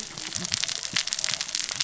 {"label": "biophony, cascading saw", "recorder": "SoundTrap 600 or HydroMoth"}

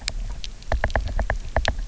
{"label": "biophony, knock", "recorder": "SoundTrap 300"}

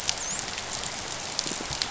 {"label": "biophony, dolphin", "recorder": "SoundTrap 500"}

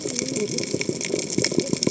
{"label": "biophony, cascading saw", "recorder": "HydroMoth"}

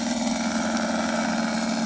{"label": "anthrophony, boat engine", "recorder": "HydroMoth"}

